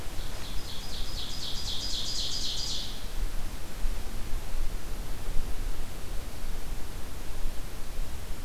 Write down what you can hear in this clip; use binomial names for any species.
Seiurus aurocapilla